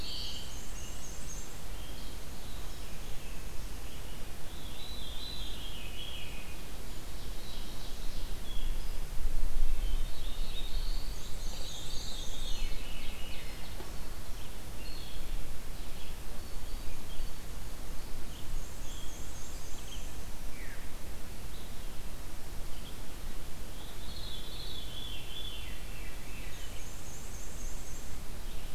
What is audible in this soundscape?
Black-throated Blue Warbler, Veery, Red-eyed Vireo, Black-and-white Warbler, Ovenbird